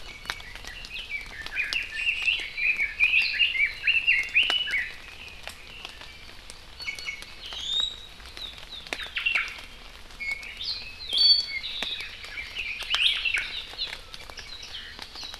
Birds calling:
Iiwi (Drepanis coccinea)
Hawaii Amakihi (Chlorodrepanis virens)
Omao (Myadestes obscurus)
Red-billed Leiothrix (Leiothrix lutea)

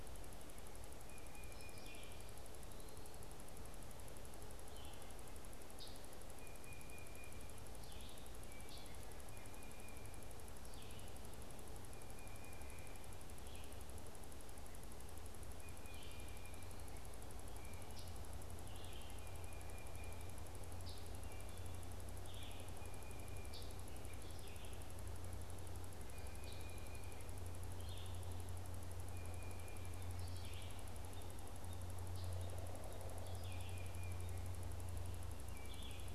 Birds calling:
Red-eyed Vireo (Vireo olivaceus)
Pileated Woodpecker (Dryocopus pileatus)
Scarlet Tanager (Piranga olivacea)
Tufted Titmouse (Baeolophus bicolor)
American Robin (Turdus migratorius)

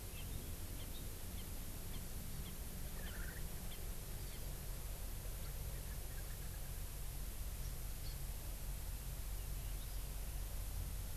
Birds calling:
Erckel's Francolin (Pternistis erckelii)

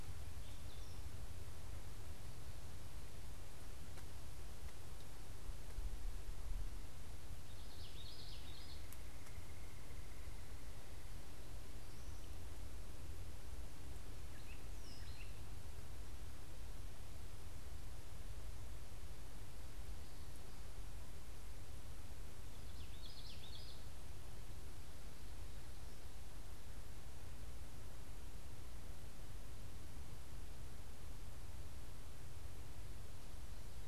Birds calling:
unidentified bird
Common Yellowthroat (Geothlypis trichas)
Gray Catbird (Dumetella carolinensis)

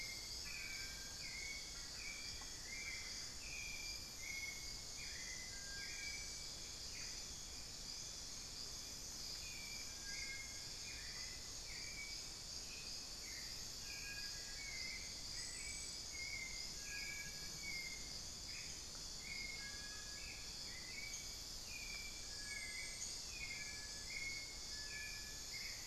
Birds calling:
Hauxwell's Thrush (Turdus hauxwelli)
Black-faced Antthrush (Formicarius analis)
unidentified bird
Screaming Piha (Lipaugus vociferans)
Little Tinamou (Crypturellus soui)
Amazonian Barred-Woodcreeper (Dendrocolaptes certhia)

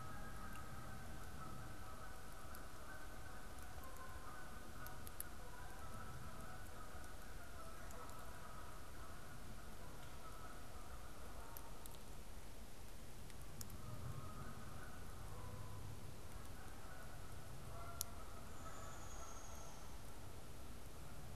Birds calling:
Downy Woodpecker (Dryobates pubescens)
Canada Goose (Branta canadensis)

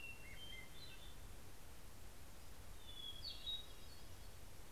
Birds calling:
Hermit Thrush (Catharus guttatus)

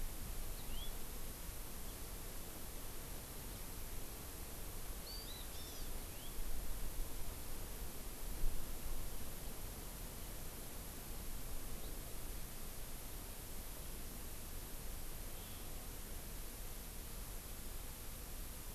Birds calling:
House Finch (Haemorhous mexicanus)
Hawaii Amakihi (Chlorodrepanis virens)

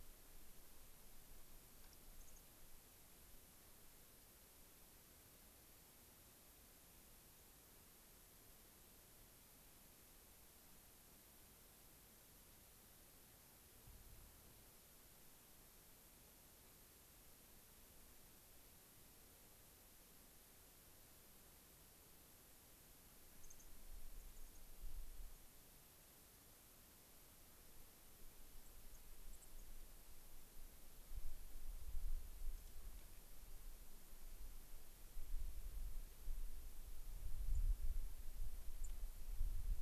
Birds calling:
Dark-eyed Junco (Junco hyemalis)

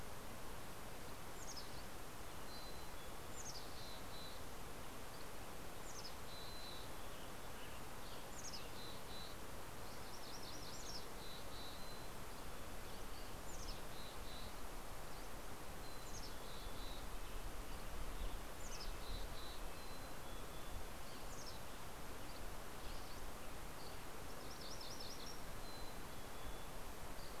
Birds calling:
Mountain Chickadee (Poecile gambeli)
MacGillivray's Warbler (Geothlypis tolmiei)
Dusky Flycatcher (Empidonax oberholseri)
Red-breasted Nuthatch (Sitta canadensis)
Western Tanager (Piranga ludoviciana)

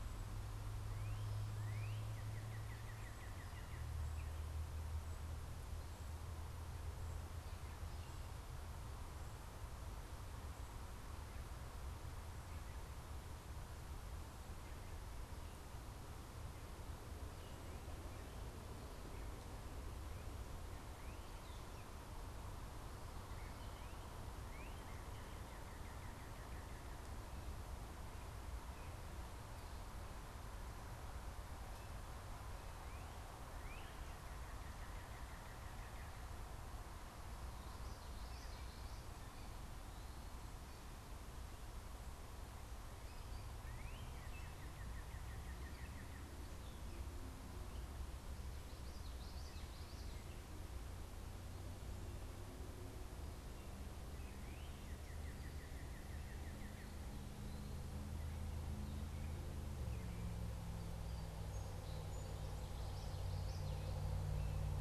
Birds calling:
Northern Cardinal (Cardinalis cardinalis)
Common Yellowthroat (Geothlypis trichas)
Song Sparrow (Melospiza melodia)

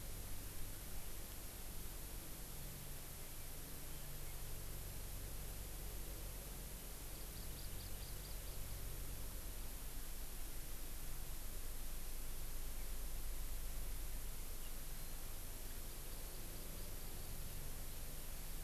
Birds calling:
Hawaii Amakihi (Chlorodrepanis virens)

